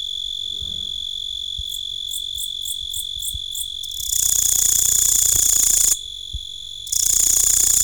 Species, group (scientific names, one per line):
Tettigonia cantans
Orthoptera